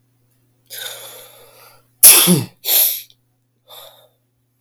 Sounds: Sneeze